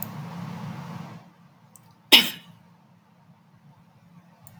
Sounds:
Throat clearing